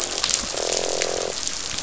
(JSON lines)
{"label": "biophony, croak", "recorder": "SoundTrap 500"}